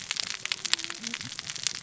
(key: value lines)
label: biophony, cascading saw
recorder: SoundTrap 600 or HydroMoth